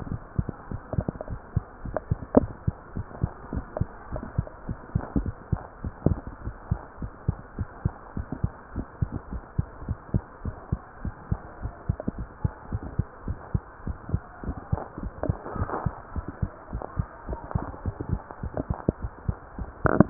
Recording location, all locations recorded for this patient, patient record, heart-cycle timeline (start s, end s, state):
mitral valve (MV)
aortic valve (AV)+pulmonary valve (PV)+tricuspid valve (TV)+mitral valve (MV)
#Age: Child
#Sex: Female
#Height: 135.0 cm
#Weight: 29.2 kg
#Pregnancy status: False
#Murmur: Absent
#Murmur locations: nan
#Most audible location: nan
#Systolic murmur timing: nan
#Systolic murmur shape: nan
#Systolic murmur grading: nan
#Systolic murmur pitch: nan
#Systolic murmur quality: nan
#Diastolic murmur timing: nan
#Diastolic murmur shape: nan
#Diastolic murmur grading: nan
#Diastolic murmur pitch: nan
#Diastolic murmur quality: nan
#Outcome: Abnormal
#Campaign: 2015 screening campaign
0.00	2.78	unannotated
2.78	2.96	diastole
2.96	3.06	S1
3.06	3.20	systole
3.20	3.34	S2
3.34	3.52	diastole
3.52	3.64	S1
3.64	3.78	systole
3.78	3.88	S2
3.88	4.10	diastole
4.10	4.24	S1
4.24	4.36	systole
4.36	4.46	S2
4.46	4.66	diastole
4.66	4.78	S1
4.78	4.92	systole
4.92	5.00	S2
5.00	5.16	diastole
5.16	5.34	S1
5.34	5.48	systole
5.48	5.60	S2
5.60	5.82	diastole
5.82	5.94	S1
5.94	6.04	systole
6.04	6.20	S2
6.20	6.42	diastole
6.42	6.54	S1
6.54	6.68	systole
6.68	6.82	S2
6.82	7.00	diastole
7.00	7.12	S1
7.12	7.26	systole
7.26	7.40	S2
7.40	7.58	diastole
7.58	7.68	S1
7.68	7.84	systole
7.84	7.94	S2
7.94	8.16	diastole
8.16	8.26	S1
8.26	8.42	systole
8.42	8.52	S2
8.52	8.74	diastole
8.74	8.86	S1
8.86	9.00	systole
9.00	9.14	S2
9.14	9.32	diastole
9.32	9.42	S1
9.42	9.56	systole
9.56	9.68	S2
9.68	9.86	diastole
9.86	9.98	S1
9.98	10.14	systole
10.14	10.24	S2
10.24	10.44	diastole
10.44	10.56	S1
10.56	10.72	systole
10.72	10.82	S2
10.82	11.04	diastole
11.04	11.14	S1
11.14	11.26	systole
11.26	11.40	S2
11.40	11.62	diastole
11.62	11.72	S1
11.72	11.88	systole
11.88	11.96	S2
11.96	12.16	diastole
12.16	12.28	S1
12.28	12.40	systole
12.40	12.52	S2
12.52	12.70	diastole
12.70	12.82	S1
12.82	12.94	systole
12.94	13.08	S2
13.08	13.24	diastole
13.24	13.38	S1
13.38	13.50	systole
13.50	13.64	S2
13.64	13.84	diastole
13.84	13.98	S1
13.98	14.08	systole
14.08	14.22	S2
14.22	14.44	diastole
14.44	14.56	S1
14.56	14.68	systole
14.68	14.82	S2
14.82	15.02	diastole
15.02	15.12	S1
15.12	15.24	systole
15.24	15.38	S2
15.38	15.56	diastole
15.56	15.70	S1
15.70	15.84	systole
15.84	15.96	S2
15.96	16.14	diastole
16.14	16.26	S1
16.26	16.38	systole
16.38	16.52	S2
16.52	16.72	diastole
16.72	16.82	S1
16.82	16.94	systole
16.94	17.06	S2
17.06	17.26	diastole
17.26	17.38	S1
17.38	17.50	systole
17.50	17.64	S2
17.64	17.82	diastole
17.82	17.96	S1
17.96	18.08	systole
18.08	18.20	S2
18.20	18.38	diastole
18.38	20.10	unannotated